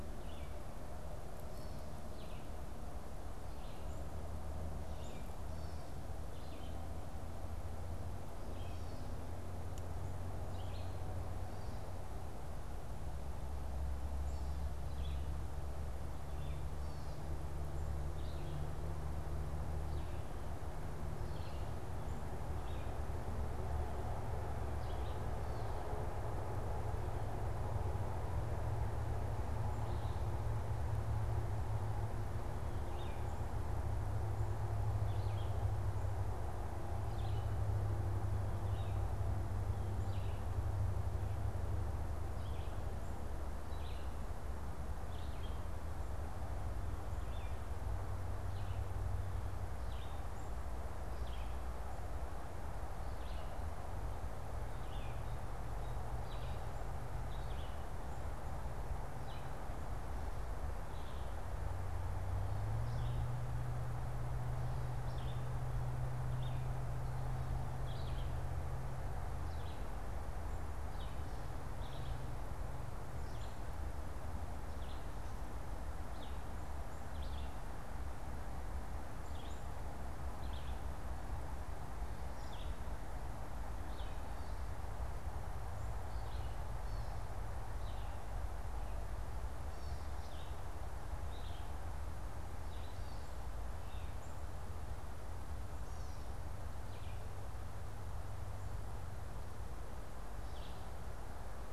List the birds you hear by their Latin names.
Poecile atricapillus, Vireo olivaceus, Dumetella carolinensis